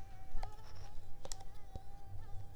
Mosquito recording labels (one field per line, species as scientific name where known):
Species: Mansonia africanus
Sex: female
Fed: unfed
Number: one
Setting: cup